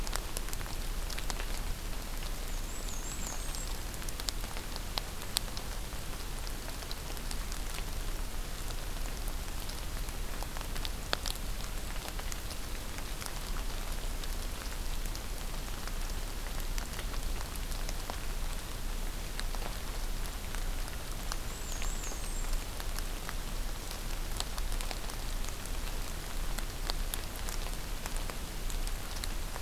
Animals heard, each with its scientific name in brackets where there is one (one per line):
Black-and-white Warbler (Mniotilta varia)